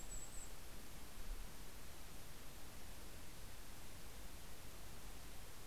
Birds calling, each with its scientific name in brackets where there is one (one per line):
Mountain Chickadee (Poecile gambeli)